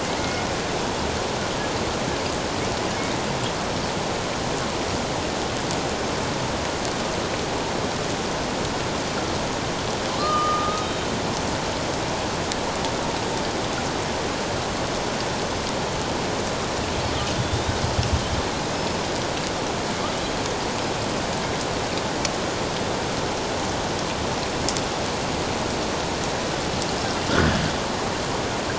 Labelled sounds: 0.2	0.5	killer whale, Bigg's (transient), 2.1 to 2.2 kHz
10.2	11.1	killer whale, Bigg's (transient), 1.1 to 3.8 kHz
17.4	17.7	killer whale, Bigg's (transient), 3.4 to 3.8 kHz

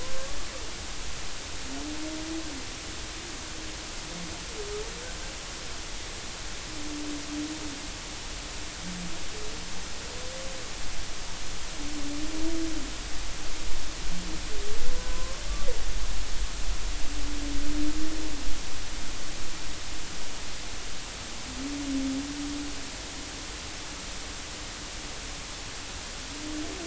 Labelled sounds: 0.0	0.2	humpback whale, 0.96 to 1.1 kHz
14.9	15.4	humpback whale, 0.96 to 1.1 kHz

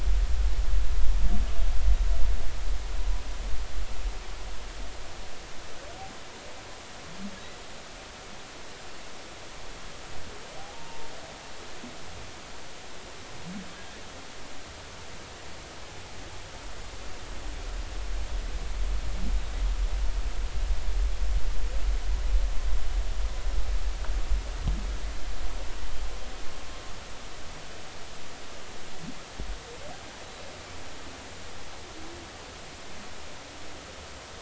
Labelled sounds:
10.6	11.1	humpback whale, 0.80 to 1.0 kHz

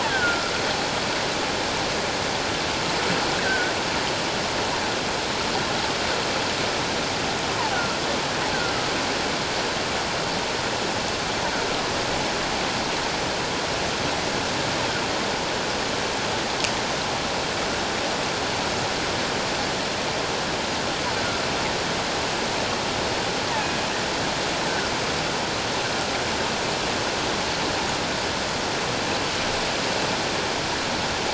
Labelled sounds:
0.0	0.5	killer whale, offshore, call OFF17, 1.3 to 1.9 kHz
3.4	3.7	killer whale, offshore, call OFF17, 1.4 to 1.6 kHz

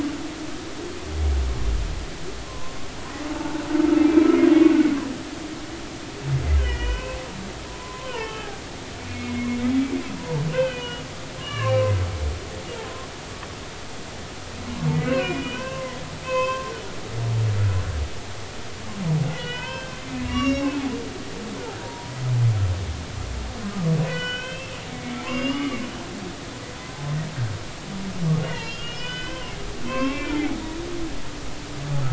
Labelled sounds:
2.4	2.8	humpback whale, 0.96 to 1.1 kHz
3.4	3.6	humpback whale, 0.83 to 0.93 kHz
4.4	4.7	humpback whale, 3.2 to 3.4 kHz
6.6	7.2	humpback whale, 0.93 to 3.2 kHz
7.8	11.0	humpback whale, 0.83 to 3.2 kHz
11.4	11.9	humpback whale, 0.99 to 3.0 kHz
14.9	16.0	humpback whale, 0.93 to 3.1 kHz
16.2	16.7	humpback whale, 0.96 to 5.3 kHz
19.3	20.8	humpback whale, 0.90 to 6.8 kHz
21.8	22.1	humpback whale, 0.90 to 0.99 kHz
24.0	25.8	humpback whale, 1.1 to 5.3 kHz
28.4	30.6	humpback whale, 0.80 to 5.0 kHz

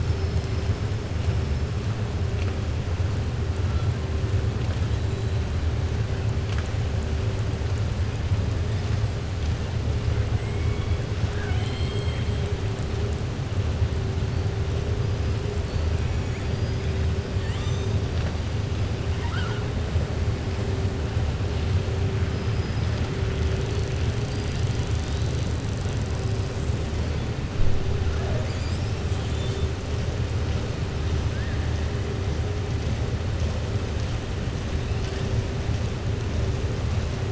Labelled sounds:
11.2	12.3	killer whale, southern resident, 0.75 to 8.0 kHz
17.3	17.9	killer whale, southern resident, 1.2 to 8.0 kHz
19.1	19.6	killer whale, southern resident, 0.87 to 4.8 kHz
22.5	23.0	killer whale, southern resident, 4.2 to 5.2 kHz

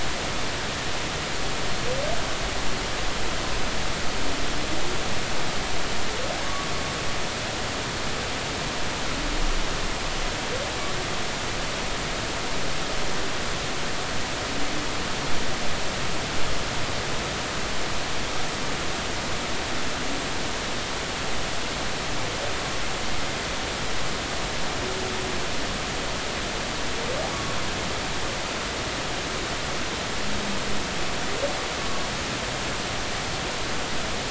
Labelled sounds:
6.4	6.7	humpback whale, 1.1 to 1.2 kHz
27.3	27.6	humpback whale, 1.1 to 1.2 kHz

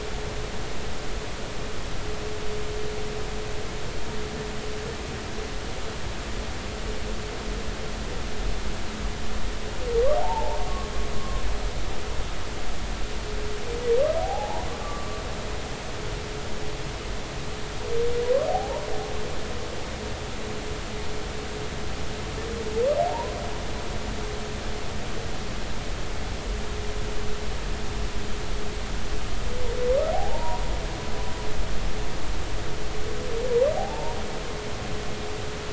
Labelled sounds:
10.2	11.4	humpback whale, 0.80 to 1.1 kHz
14.2	15.2	humpback whale, 0.80 to 1.2 kHz
18.5	18.9	humpback whale, 0.80 to 1.0 kHz
23.0	23.3	humpback whale, 0.80 to 1.1 kHz
30.1	30.6	humpback whale, 0.80 to 1.0 kHz
33.8	34.2	humpback whale, 0.80 to 0.99 kHz

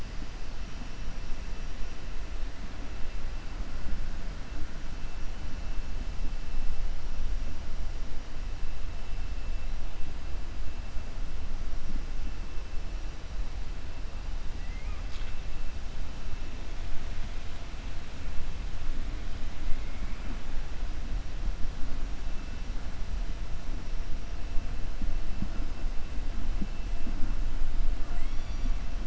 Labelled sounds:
14.6	15.0	killer whale, 1.2 to 2.5 kHz
28.0	28.7	killer whale, 0.72 to 7.9 kHz

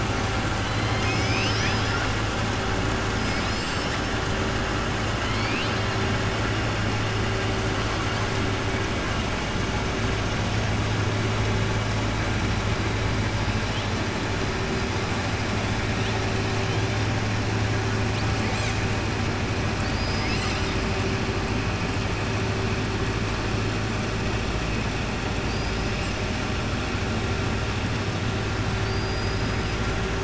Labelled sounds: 0.6	2.1	killer whale, southern resident, 1.4 to 6.3 kHz
3.2	4.0	killer whale, southern resident, 3.7 to 5.9 kHz
5.2	5.8	killer whale, southern resident, 2.1 to 5.0 kHz
25.4	26.1	killer whale, southern resident, 4.5 to 6.0 kHz
28.7	29.8	killer whale, southern resident, 4.1 to 5.1 kHz

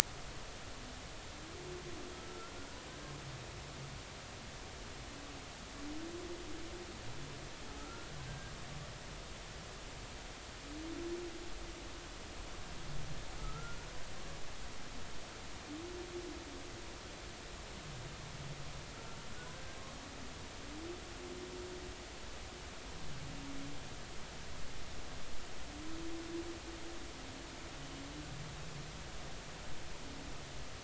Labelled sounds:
2.1	2.5	humpback whale, 1.2 to 1.4 kHz
7.8	8.5	humpback whale, 1.2 to 1.7 kHz
13.4	13.8	humpback whale, 1.2 to 1.5 kHz

